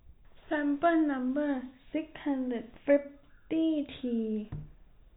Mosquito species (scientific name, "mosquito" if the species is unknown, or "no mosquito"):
no mosquito